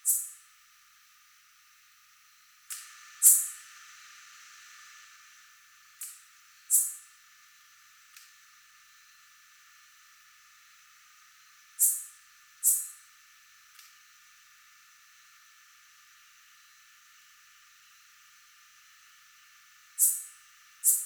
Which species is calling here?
Phyllomimus inversus